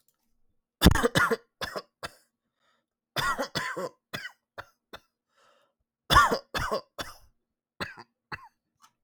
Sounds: Cough